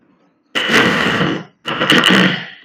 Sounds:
Throat clearing